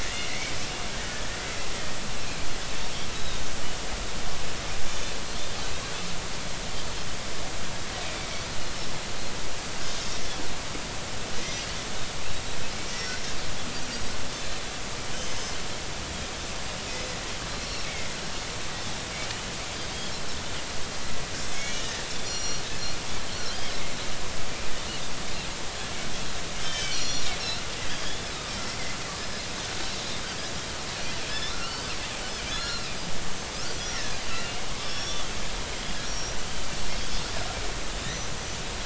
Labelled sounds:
0.0	0.5	Pacific white-sided dolphin, 1.7 to 2.3 kHz
3.1	3.5	Pacific white-sided dolphin, 3.6 to 4.0 kHz
8.0	8.3	Pacific white-sided dolphin, 2.2 to 2.6 kHz
9.9	10.1	Pacific white-sided dolphin, 4.7 to 6.4 kHz
11.4	11.7	Pacific white-sided dolphin, 3.1 to 3.3 kHz
12.9	13.2	Pacific white-sided dolphin, 5.4 to 5.7 kHz
15.2	15.5	Pacific white-sided dolphin, 5.1 to 6.8 kHz
16.9	17.1	Pacific white-sided dolphin, 5.0 to 5.2 kHz
17.5	18.1	Pacific white-sided dolphin, 2.0 to 4.2 kHz
21.5	22.6	Pacific white-sided dolphin, 1.8 to 7.2 kHz
23.3	23.7	Pacific white-sided dolphin, 3.0 to 4.5 kHz
26.6	28.3	Pacific white-sided dolphin, 2.2 to 7.3 kHz
29.2	29.4	Pacific white-sided dolphin, 5.1 to 5.2 kHz
31.3	31.9	Pacific white-sided dolphin, 1.2 to 3.7 kHz
32.5	35.3	Pacific white-sided dolphin, 1.2 to 5.9 kHz
36.0	36.4	Pacific white-sided dolphin, 5.5 to 6.0 kHz

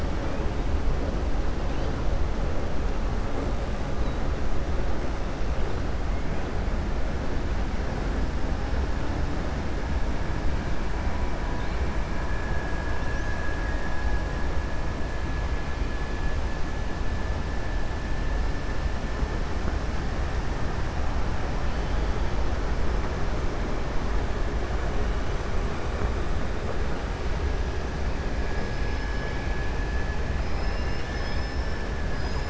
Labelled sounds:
30.4	31.8	killer whale, 1.7 to 6.1 kHz

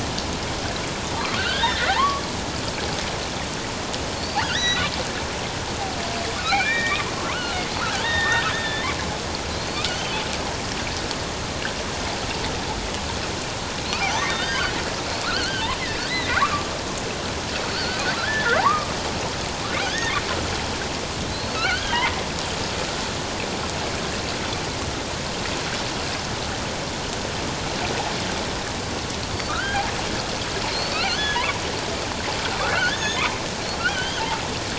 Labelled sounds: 1.4	2.2	killer whale, offshore, 0.78 to 3.8 kHz
4.1	4.8	killer whale, offshore, 1.3 to 6.0 kHz
6.4	7.7	killer whale, offshore, 0.94 to 3.8 kHz
8.0	8.9	killer whale, offshore, 1.7 to 3.8 kHz
9.5	9.8	killer whale, offshore, 3.9 to 4.5 kHz
14.0	14.7	killer whale, offshore, 0.78 to 6.3 kHz
15.1	16.7	killer whale, offshore, 0.94 to 4.5 kHz
17.7	18.9	killer whale, offshore, 0.78 to 4.8 kHz
19.8	20.1	killer whale, offshore, 1.4 to 6.5 kHz
21.3	22.0	killer whale, offshore, 1.2 to 4.5 kHz
29.5	29.8	killer whale, offshore, 1.2 to 3.3 kHz
30.7	31.4	killer whale, offshore, 1.6 to 4.6 kHz
32.7	34.2	killer whale, offshore, 1.3 to 6.6 kHz

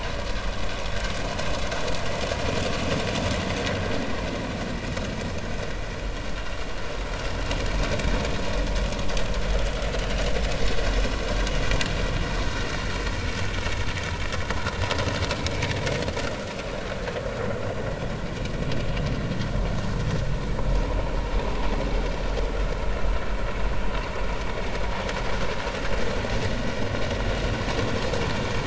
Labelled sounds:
15.3	15.6	vessel noise, 3.8 to 4.0 kHz

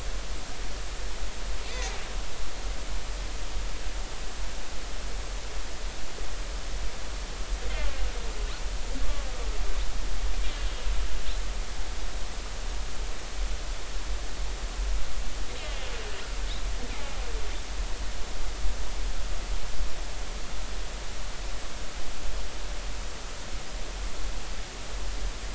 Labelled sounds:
15.6	15.9	killer whale, northern resident, 1.8 to 2.2 kHz
16.9	17.2	killer whale, northern resident, 2.0 to 2.5 kHz

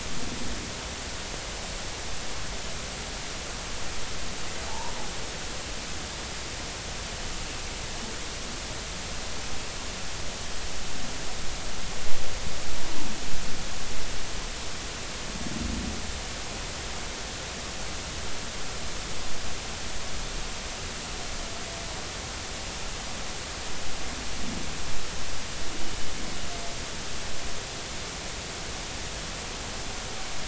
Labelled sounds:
4.7	4.9	humpback whale, 0.80 to 1.0 kHz

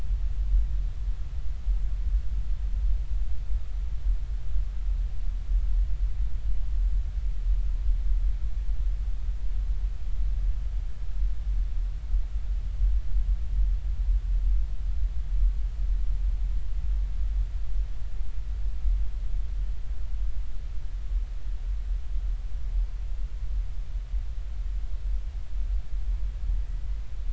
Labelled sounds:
26.7	27.0	humpback whale, 1.9 to 2.1 kHz

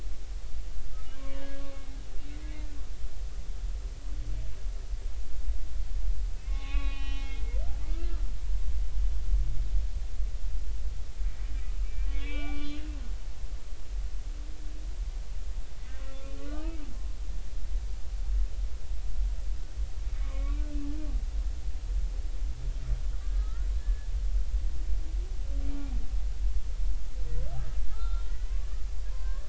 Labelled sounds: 0.9	2.0	humpback whale, 1.0 to 3.4 kHz
6.4	8.1	humpback whale, 0.80 to 4.2 kHz
12.1	12.8	humpback whale, 1.1 to 3.6 kHz
16.0	16.3	humpback whale, 1.3 to 1.4 kHz
17.4	17.9	humpback whale, 1.1 to 1.3 kHz
20.2	20.7	humpback whale, 1.0 to 2.4 kHz
23.2	24.1	humpback whale, 1.1 to 1.9 kHz
27.9	29.4	humpback whale, 0.90 to 4.2 kHz

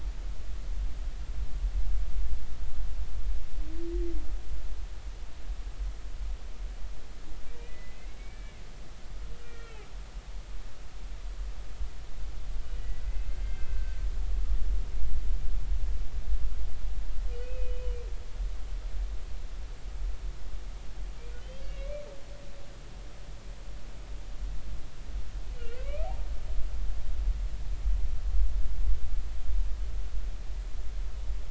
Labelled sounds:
7.6	8.6	humpback whale, 1.9 to 2.4 kHz
9.4	9.8	humpback whale, 1.3 to 3.4 kHz
12.6	14.0	humpback whale, 1.5 to 3.0 kHz
17.4	18.0	humpback whale, 2.4 to 3.0 kHz
21.4	21.9	humpback whale, 2.1 to 3.3 kHz
25.6	26.1	humpback whale, 1.1 to 3.0 kHz

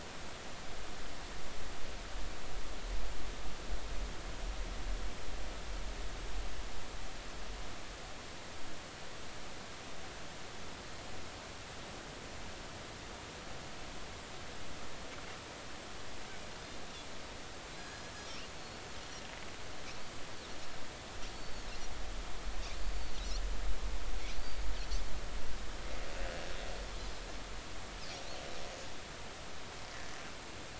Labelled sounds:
17.8	18.8	Pacific white-sided dolphin, 1.6 to 4.4 kHz
21.3	21.7	Pacific white-sided dolphin, 4.4 to 4.5 kHz
23.0	23.2	Pacific white-sided dolphin, 4.2 to 4.6 kHz

